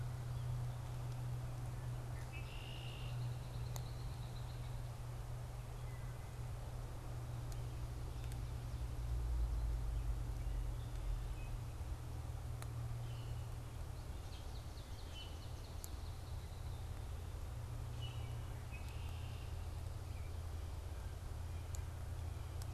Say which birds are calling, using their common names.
Red-winged Blackbird, Wood Thrush, Swamp Sparrow, Common Grackle